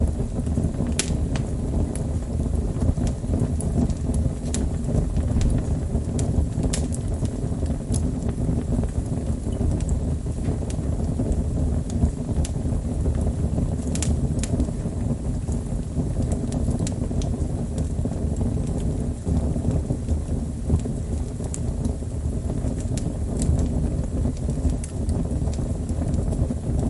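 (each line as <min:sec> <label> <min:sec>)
0:00.0 Fire crackling. 0:26.9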